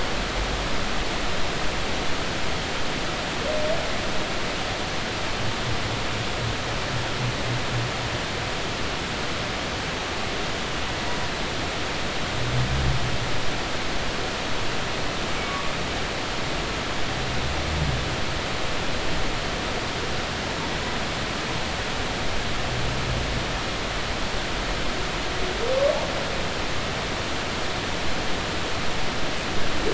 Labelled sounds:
16.4	16.7	humpback whale, 1.1 to 1.2 kHz

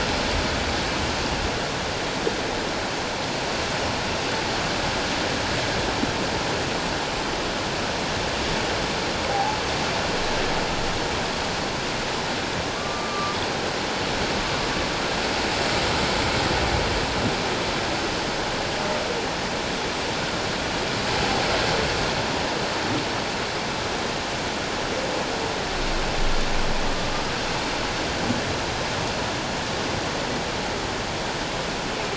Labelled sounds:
9.3	9.6	humpback whale, 0.78 to 0.91 kHz
12.7	13.4	humpback whale, 1.1 to 1.2 kHz

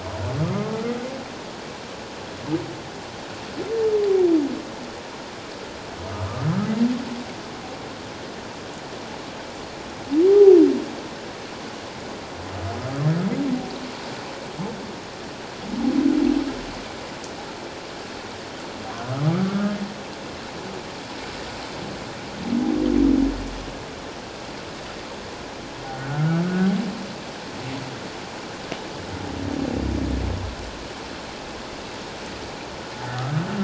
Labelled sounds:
6.1	6.5	humpback whale, 1.1 to 1.3 kHz
10.3	10.6	humpback whale, 0.78 to 0.84 kHz
25.9	26.7	humpback whale, 1.1 to 1.6 kHz

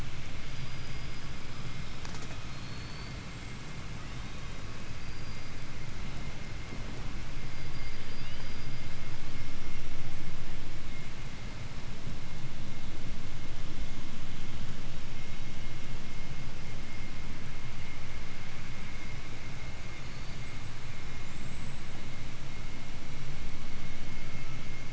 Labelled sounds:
0.3	2.0	killer whale, southern resident, 4.4 to 8.0 kHz
2.5	3.2	killer whale, 3.7 to 5.1 kHz
4.6	6.0	killer whale, 4.0 to 5.4 kHz
7.1	9.2	killer whale, southern resident, call S19, 0.39 to 8.0 kHz
18.7	19.5	killer whale, 7.5 to 8.0 kHz
19.9	20.8	killer whale, 7.3 to 8.0 kHz
21.1	22.1	killer whale, 6.6 to 8.0 kHz

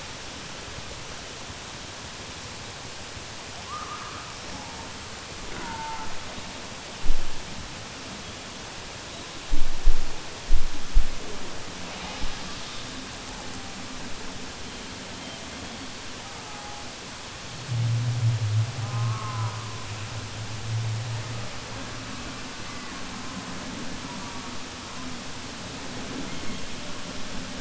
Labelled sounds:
3.6	4.3	killer whale, southern resident, 0.74 to 2.3 kHz

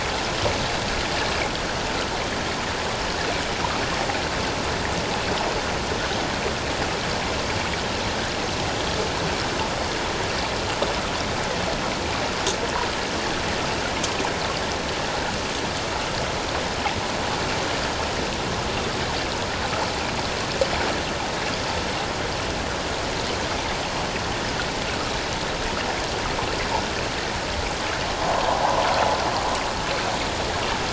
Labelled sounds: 28.3	28.8	water noise, 0.78 to 1.2 kHz

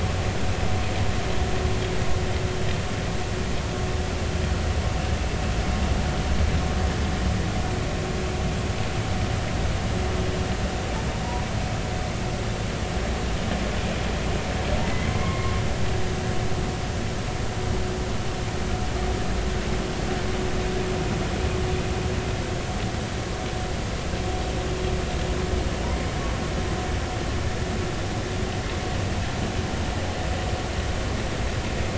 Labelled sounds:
14.8	15.6	humpback whale, 0.99 to 2.2 kHz

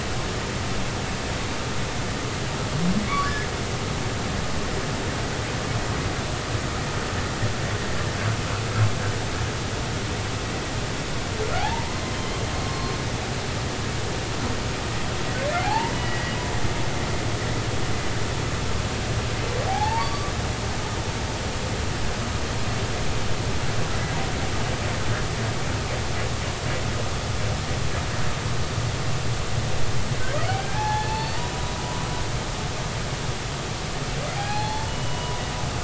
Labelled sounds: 3.1	3.5	humpback whale, 1.1 to 1.8 kHz
11.6	12.4	humpback whale, 0.80 to 3.2 kHz
15.6	16.3	humpback whale, 0.80 to 3.0 kHz
19.7	20.3	humpback whale, 0.80 to 4.7 kHz
30.5	31.4	humpback whale, 0.80 to 4.5 kHz
34.4	35.4	humpback whale, 0.80 to 4.4 kHz

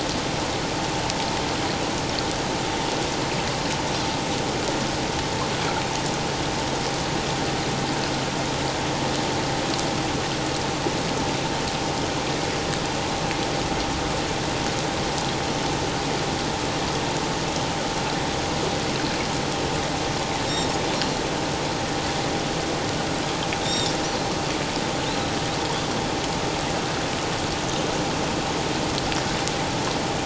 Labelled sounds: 20.5	21.2	Pacific white-sided dolphin, 3.6 to 4.3 kHz
23.6	23.9	Pacific white-sided dolphin, 3.5 to 3.8 kHz

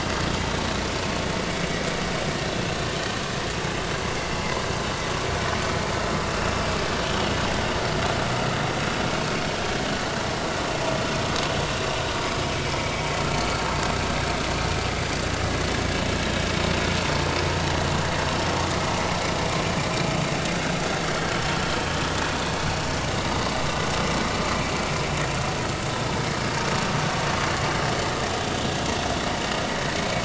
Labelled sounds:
7.2	7.4	vessel noise, 2.8 to 3.1 kHz
12.4	13.1	vessel noise, 2.2 to 2.4 kHz

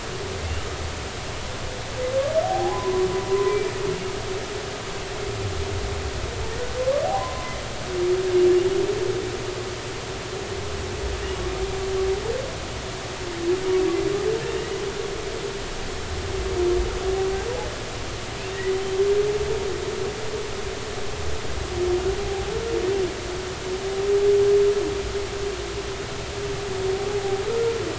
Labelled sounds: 0.4	0.7	humpback whale, 2.6 to 3.1 kHz
2.4	3.7	humpback whale, 0.80 to 2.4 kHz
7.1	7.5	humpback whale, 0.93 to 1.1 kHz
14.5	14.8	humpback whale, 1.8 to 2.0 kHz
22.2	22.5	humpback whale, 0.80 to 0.90 kHz

